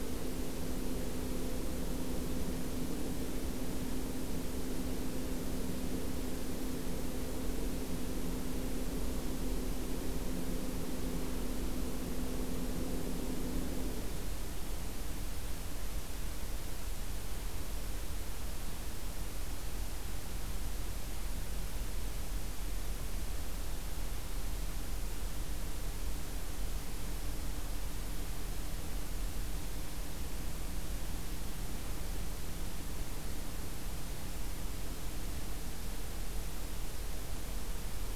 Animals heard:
forest ambience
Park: Acadia National Park